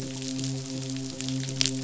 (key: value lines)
label: biophony, midshipman
recorder: SoundTrap 500